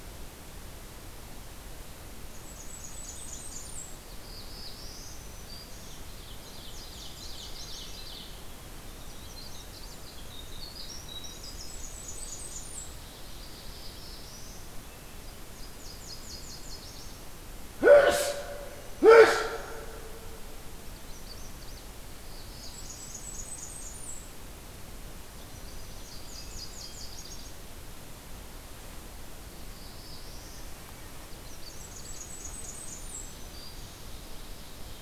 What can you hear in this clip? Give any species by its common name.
Blackburnian Warbler, Magnolia Warbler, Black-throated Blue Warbler, Black-throated Green Warbler, Ovenbird, Winter Wren, Nashville Warbler